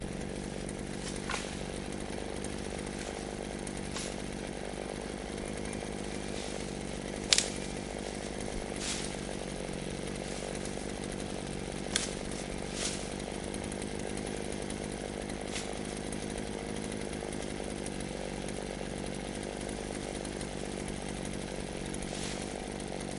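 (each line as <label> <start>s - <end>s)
A chainsaw engine runs continuously, producing a repetitive buzzing sound. 0.0s - 23.2s
Branches and leaves rustle as they are cut. 1.0s - 2.1s
Leaves rustle as they are being cut. 3.6s - 4.8s
Branches rustle as they are cut. 6.9s - 7.9s
Leaves rustle as they are being cut. 8.4s - 9.5s
Branches and leaves rustle as they are cut. 11.4s - 13.8s
Leaves rustle as they are being cut. 15.1s - 16.1s
Leaves rustle as they are being cut. 21.7s - 23.0s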